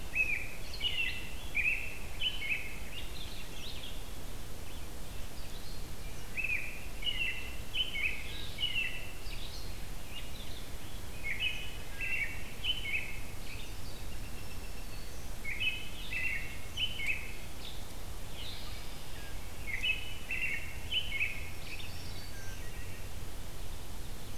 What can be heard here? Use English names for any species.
American Robin, Black-throated Green Warbler, Red-eyed Vireo